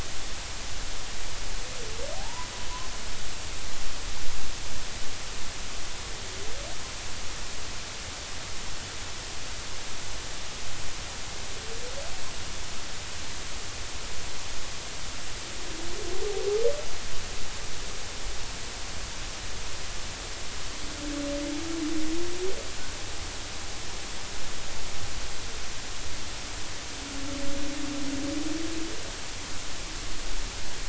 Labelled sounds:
2.2	2.5	humpback whale, 0.80 to 1.1 kHz

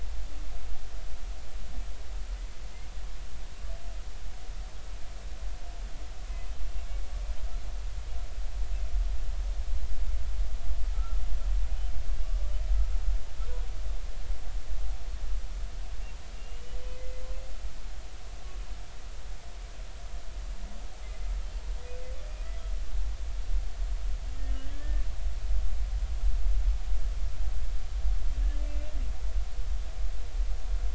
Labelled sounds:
10.9	11.2	humpback whale, 1.2 to 1.4 kHz
16.4	17.2	humpback whale, 2.0 to 3.0 kHz
24.7	25.1	humpback whale, 1.7 to 1.9 kHz
28.7	28.9	humpback whale, 2.6 to 2.8 kHz

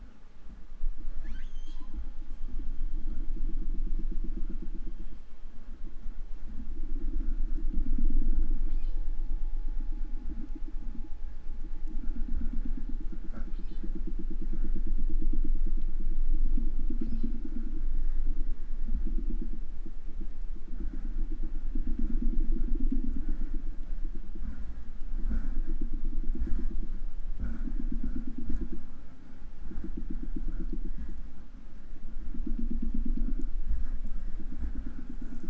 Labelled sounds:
1.0	2.0	killer whale, 0.29 to 8.0 kHz
8.6	9.2	killer whale, southern resident, 0.35 to 8.0 kHz
13.3	14.0	killer whale, southern resident, 0.73 to 5.9 kHz
16.9	17.5	killer whale, southern resident, 0.62 to 6.0 kHz

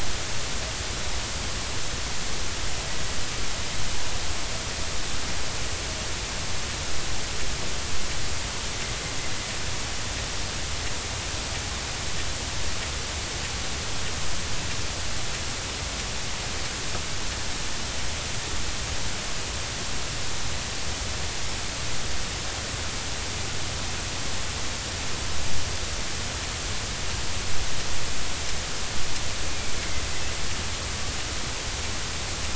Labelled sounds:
29.5	29.7	killer whale, northern resident, A clan, AA subclan, 2.2 to 2.5 kHz

